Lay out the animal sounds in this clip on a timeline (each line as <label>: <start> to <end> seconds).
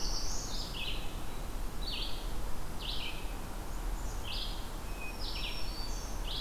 Black-throated Blue Warbler (Setophaga caerulescens): 0.0 to 0.6 seconds
Red-eyed Vireo (Vireo olivaceus): 0.0 to 6.4 seconds
Black-throated Green Warbler (Setophaga virens): 4.8 to 6.3 seconds